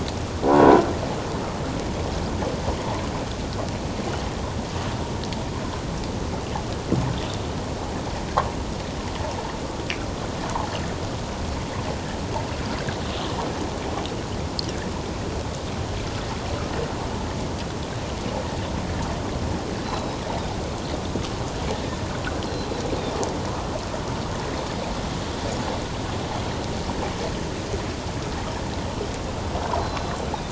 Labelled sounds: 19.8	20.2	Pacific white-sided dolphin, 3.8 to 5.4 kHz
22.4	22.7	Pacific white-sided dolphin, 4.0 to 4.2 kHz
29.8	30.2	Pacific white-sided dolphin, 3.9 to 4.2 kHz

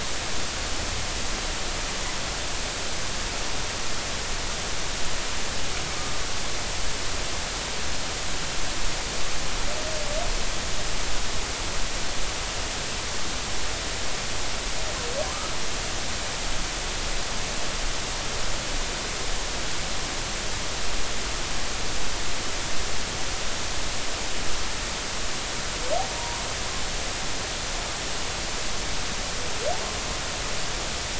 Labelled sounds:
26.1	26.4	humpback whale, 0.90 to 1.1 kHz

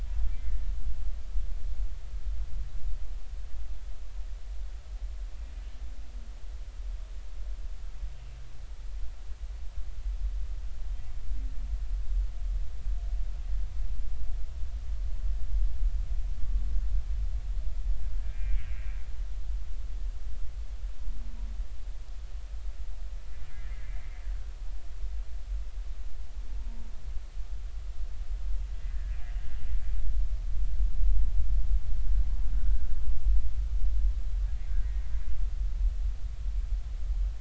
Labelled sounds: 0.3	0.6	humpback whale, 2.0 to 2.1 kHz
5.5	5.8	humpback whale, 2.9 to 3.1 kHz
18.2	18.8	humpback whale, 1.5 to 2.7 kHz
23.6	24.1	humpback whale, 1.9 to 2.1 kHz
28.7	29.2	humpback whale, 1.6 to 2.1 kHz
32.5	32.8	humpback whale, 1.4 to 1.7 kHz
34.8	35.0	humpback whale, 1.8 to 2.1 kHz

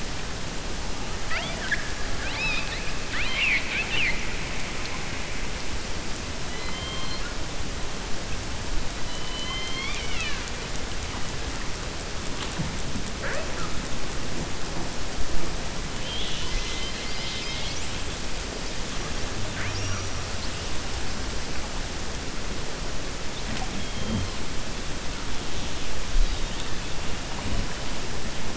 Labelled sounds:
2.1	2.9	killer whale, 0.85 to 5.2 kHz
9.0	10.5	killer whale, 1.1 to 6.8 kHz

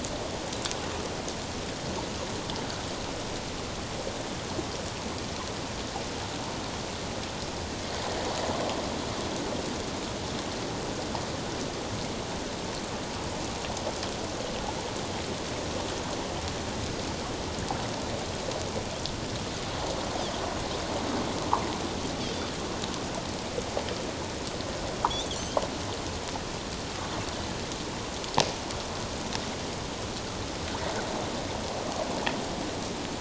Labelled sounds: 25.3	25.6	Pacific white-sided dolphin, 2.9 to 3.5 kHz

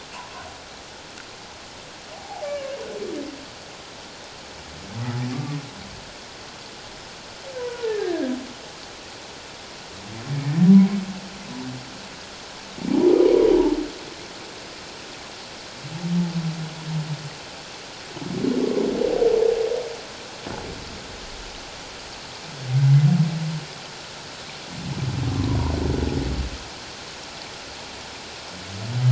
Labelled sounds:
2.1	2.5	humpback whale, 0.78 to 0.91 kHz
7.6	8.4	humpback whale, 0.84 to 1.9 kHz

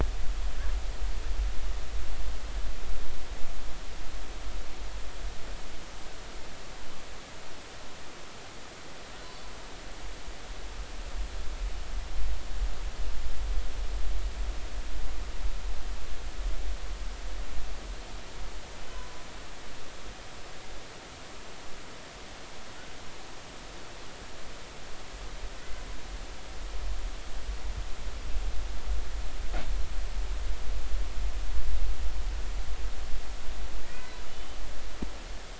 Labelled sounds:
9.2	9.5	humpback whale, 4.4 to 4.6 kHz
33.8	34.6	humpback whale, 1.7 to 3.1 kHz

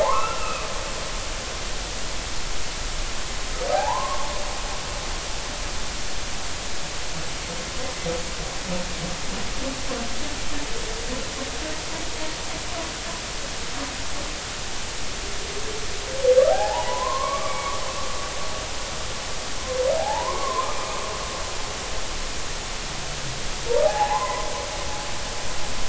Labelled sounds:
0.0	0.7	humpback whale, 0.80 to 2.8 kHz
3.7	4.2	humpback whale, 0.80 to 1.2 kHz
16.5	17.7	humpback whale, 0.80 to 2.4 kHz
20.0	20.7	humpback whale, 0.80 to 1.2 kHz
23.8	24.5	humpback whale, 0.80 to 1.1 kHz

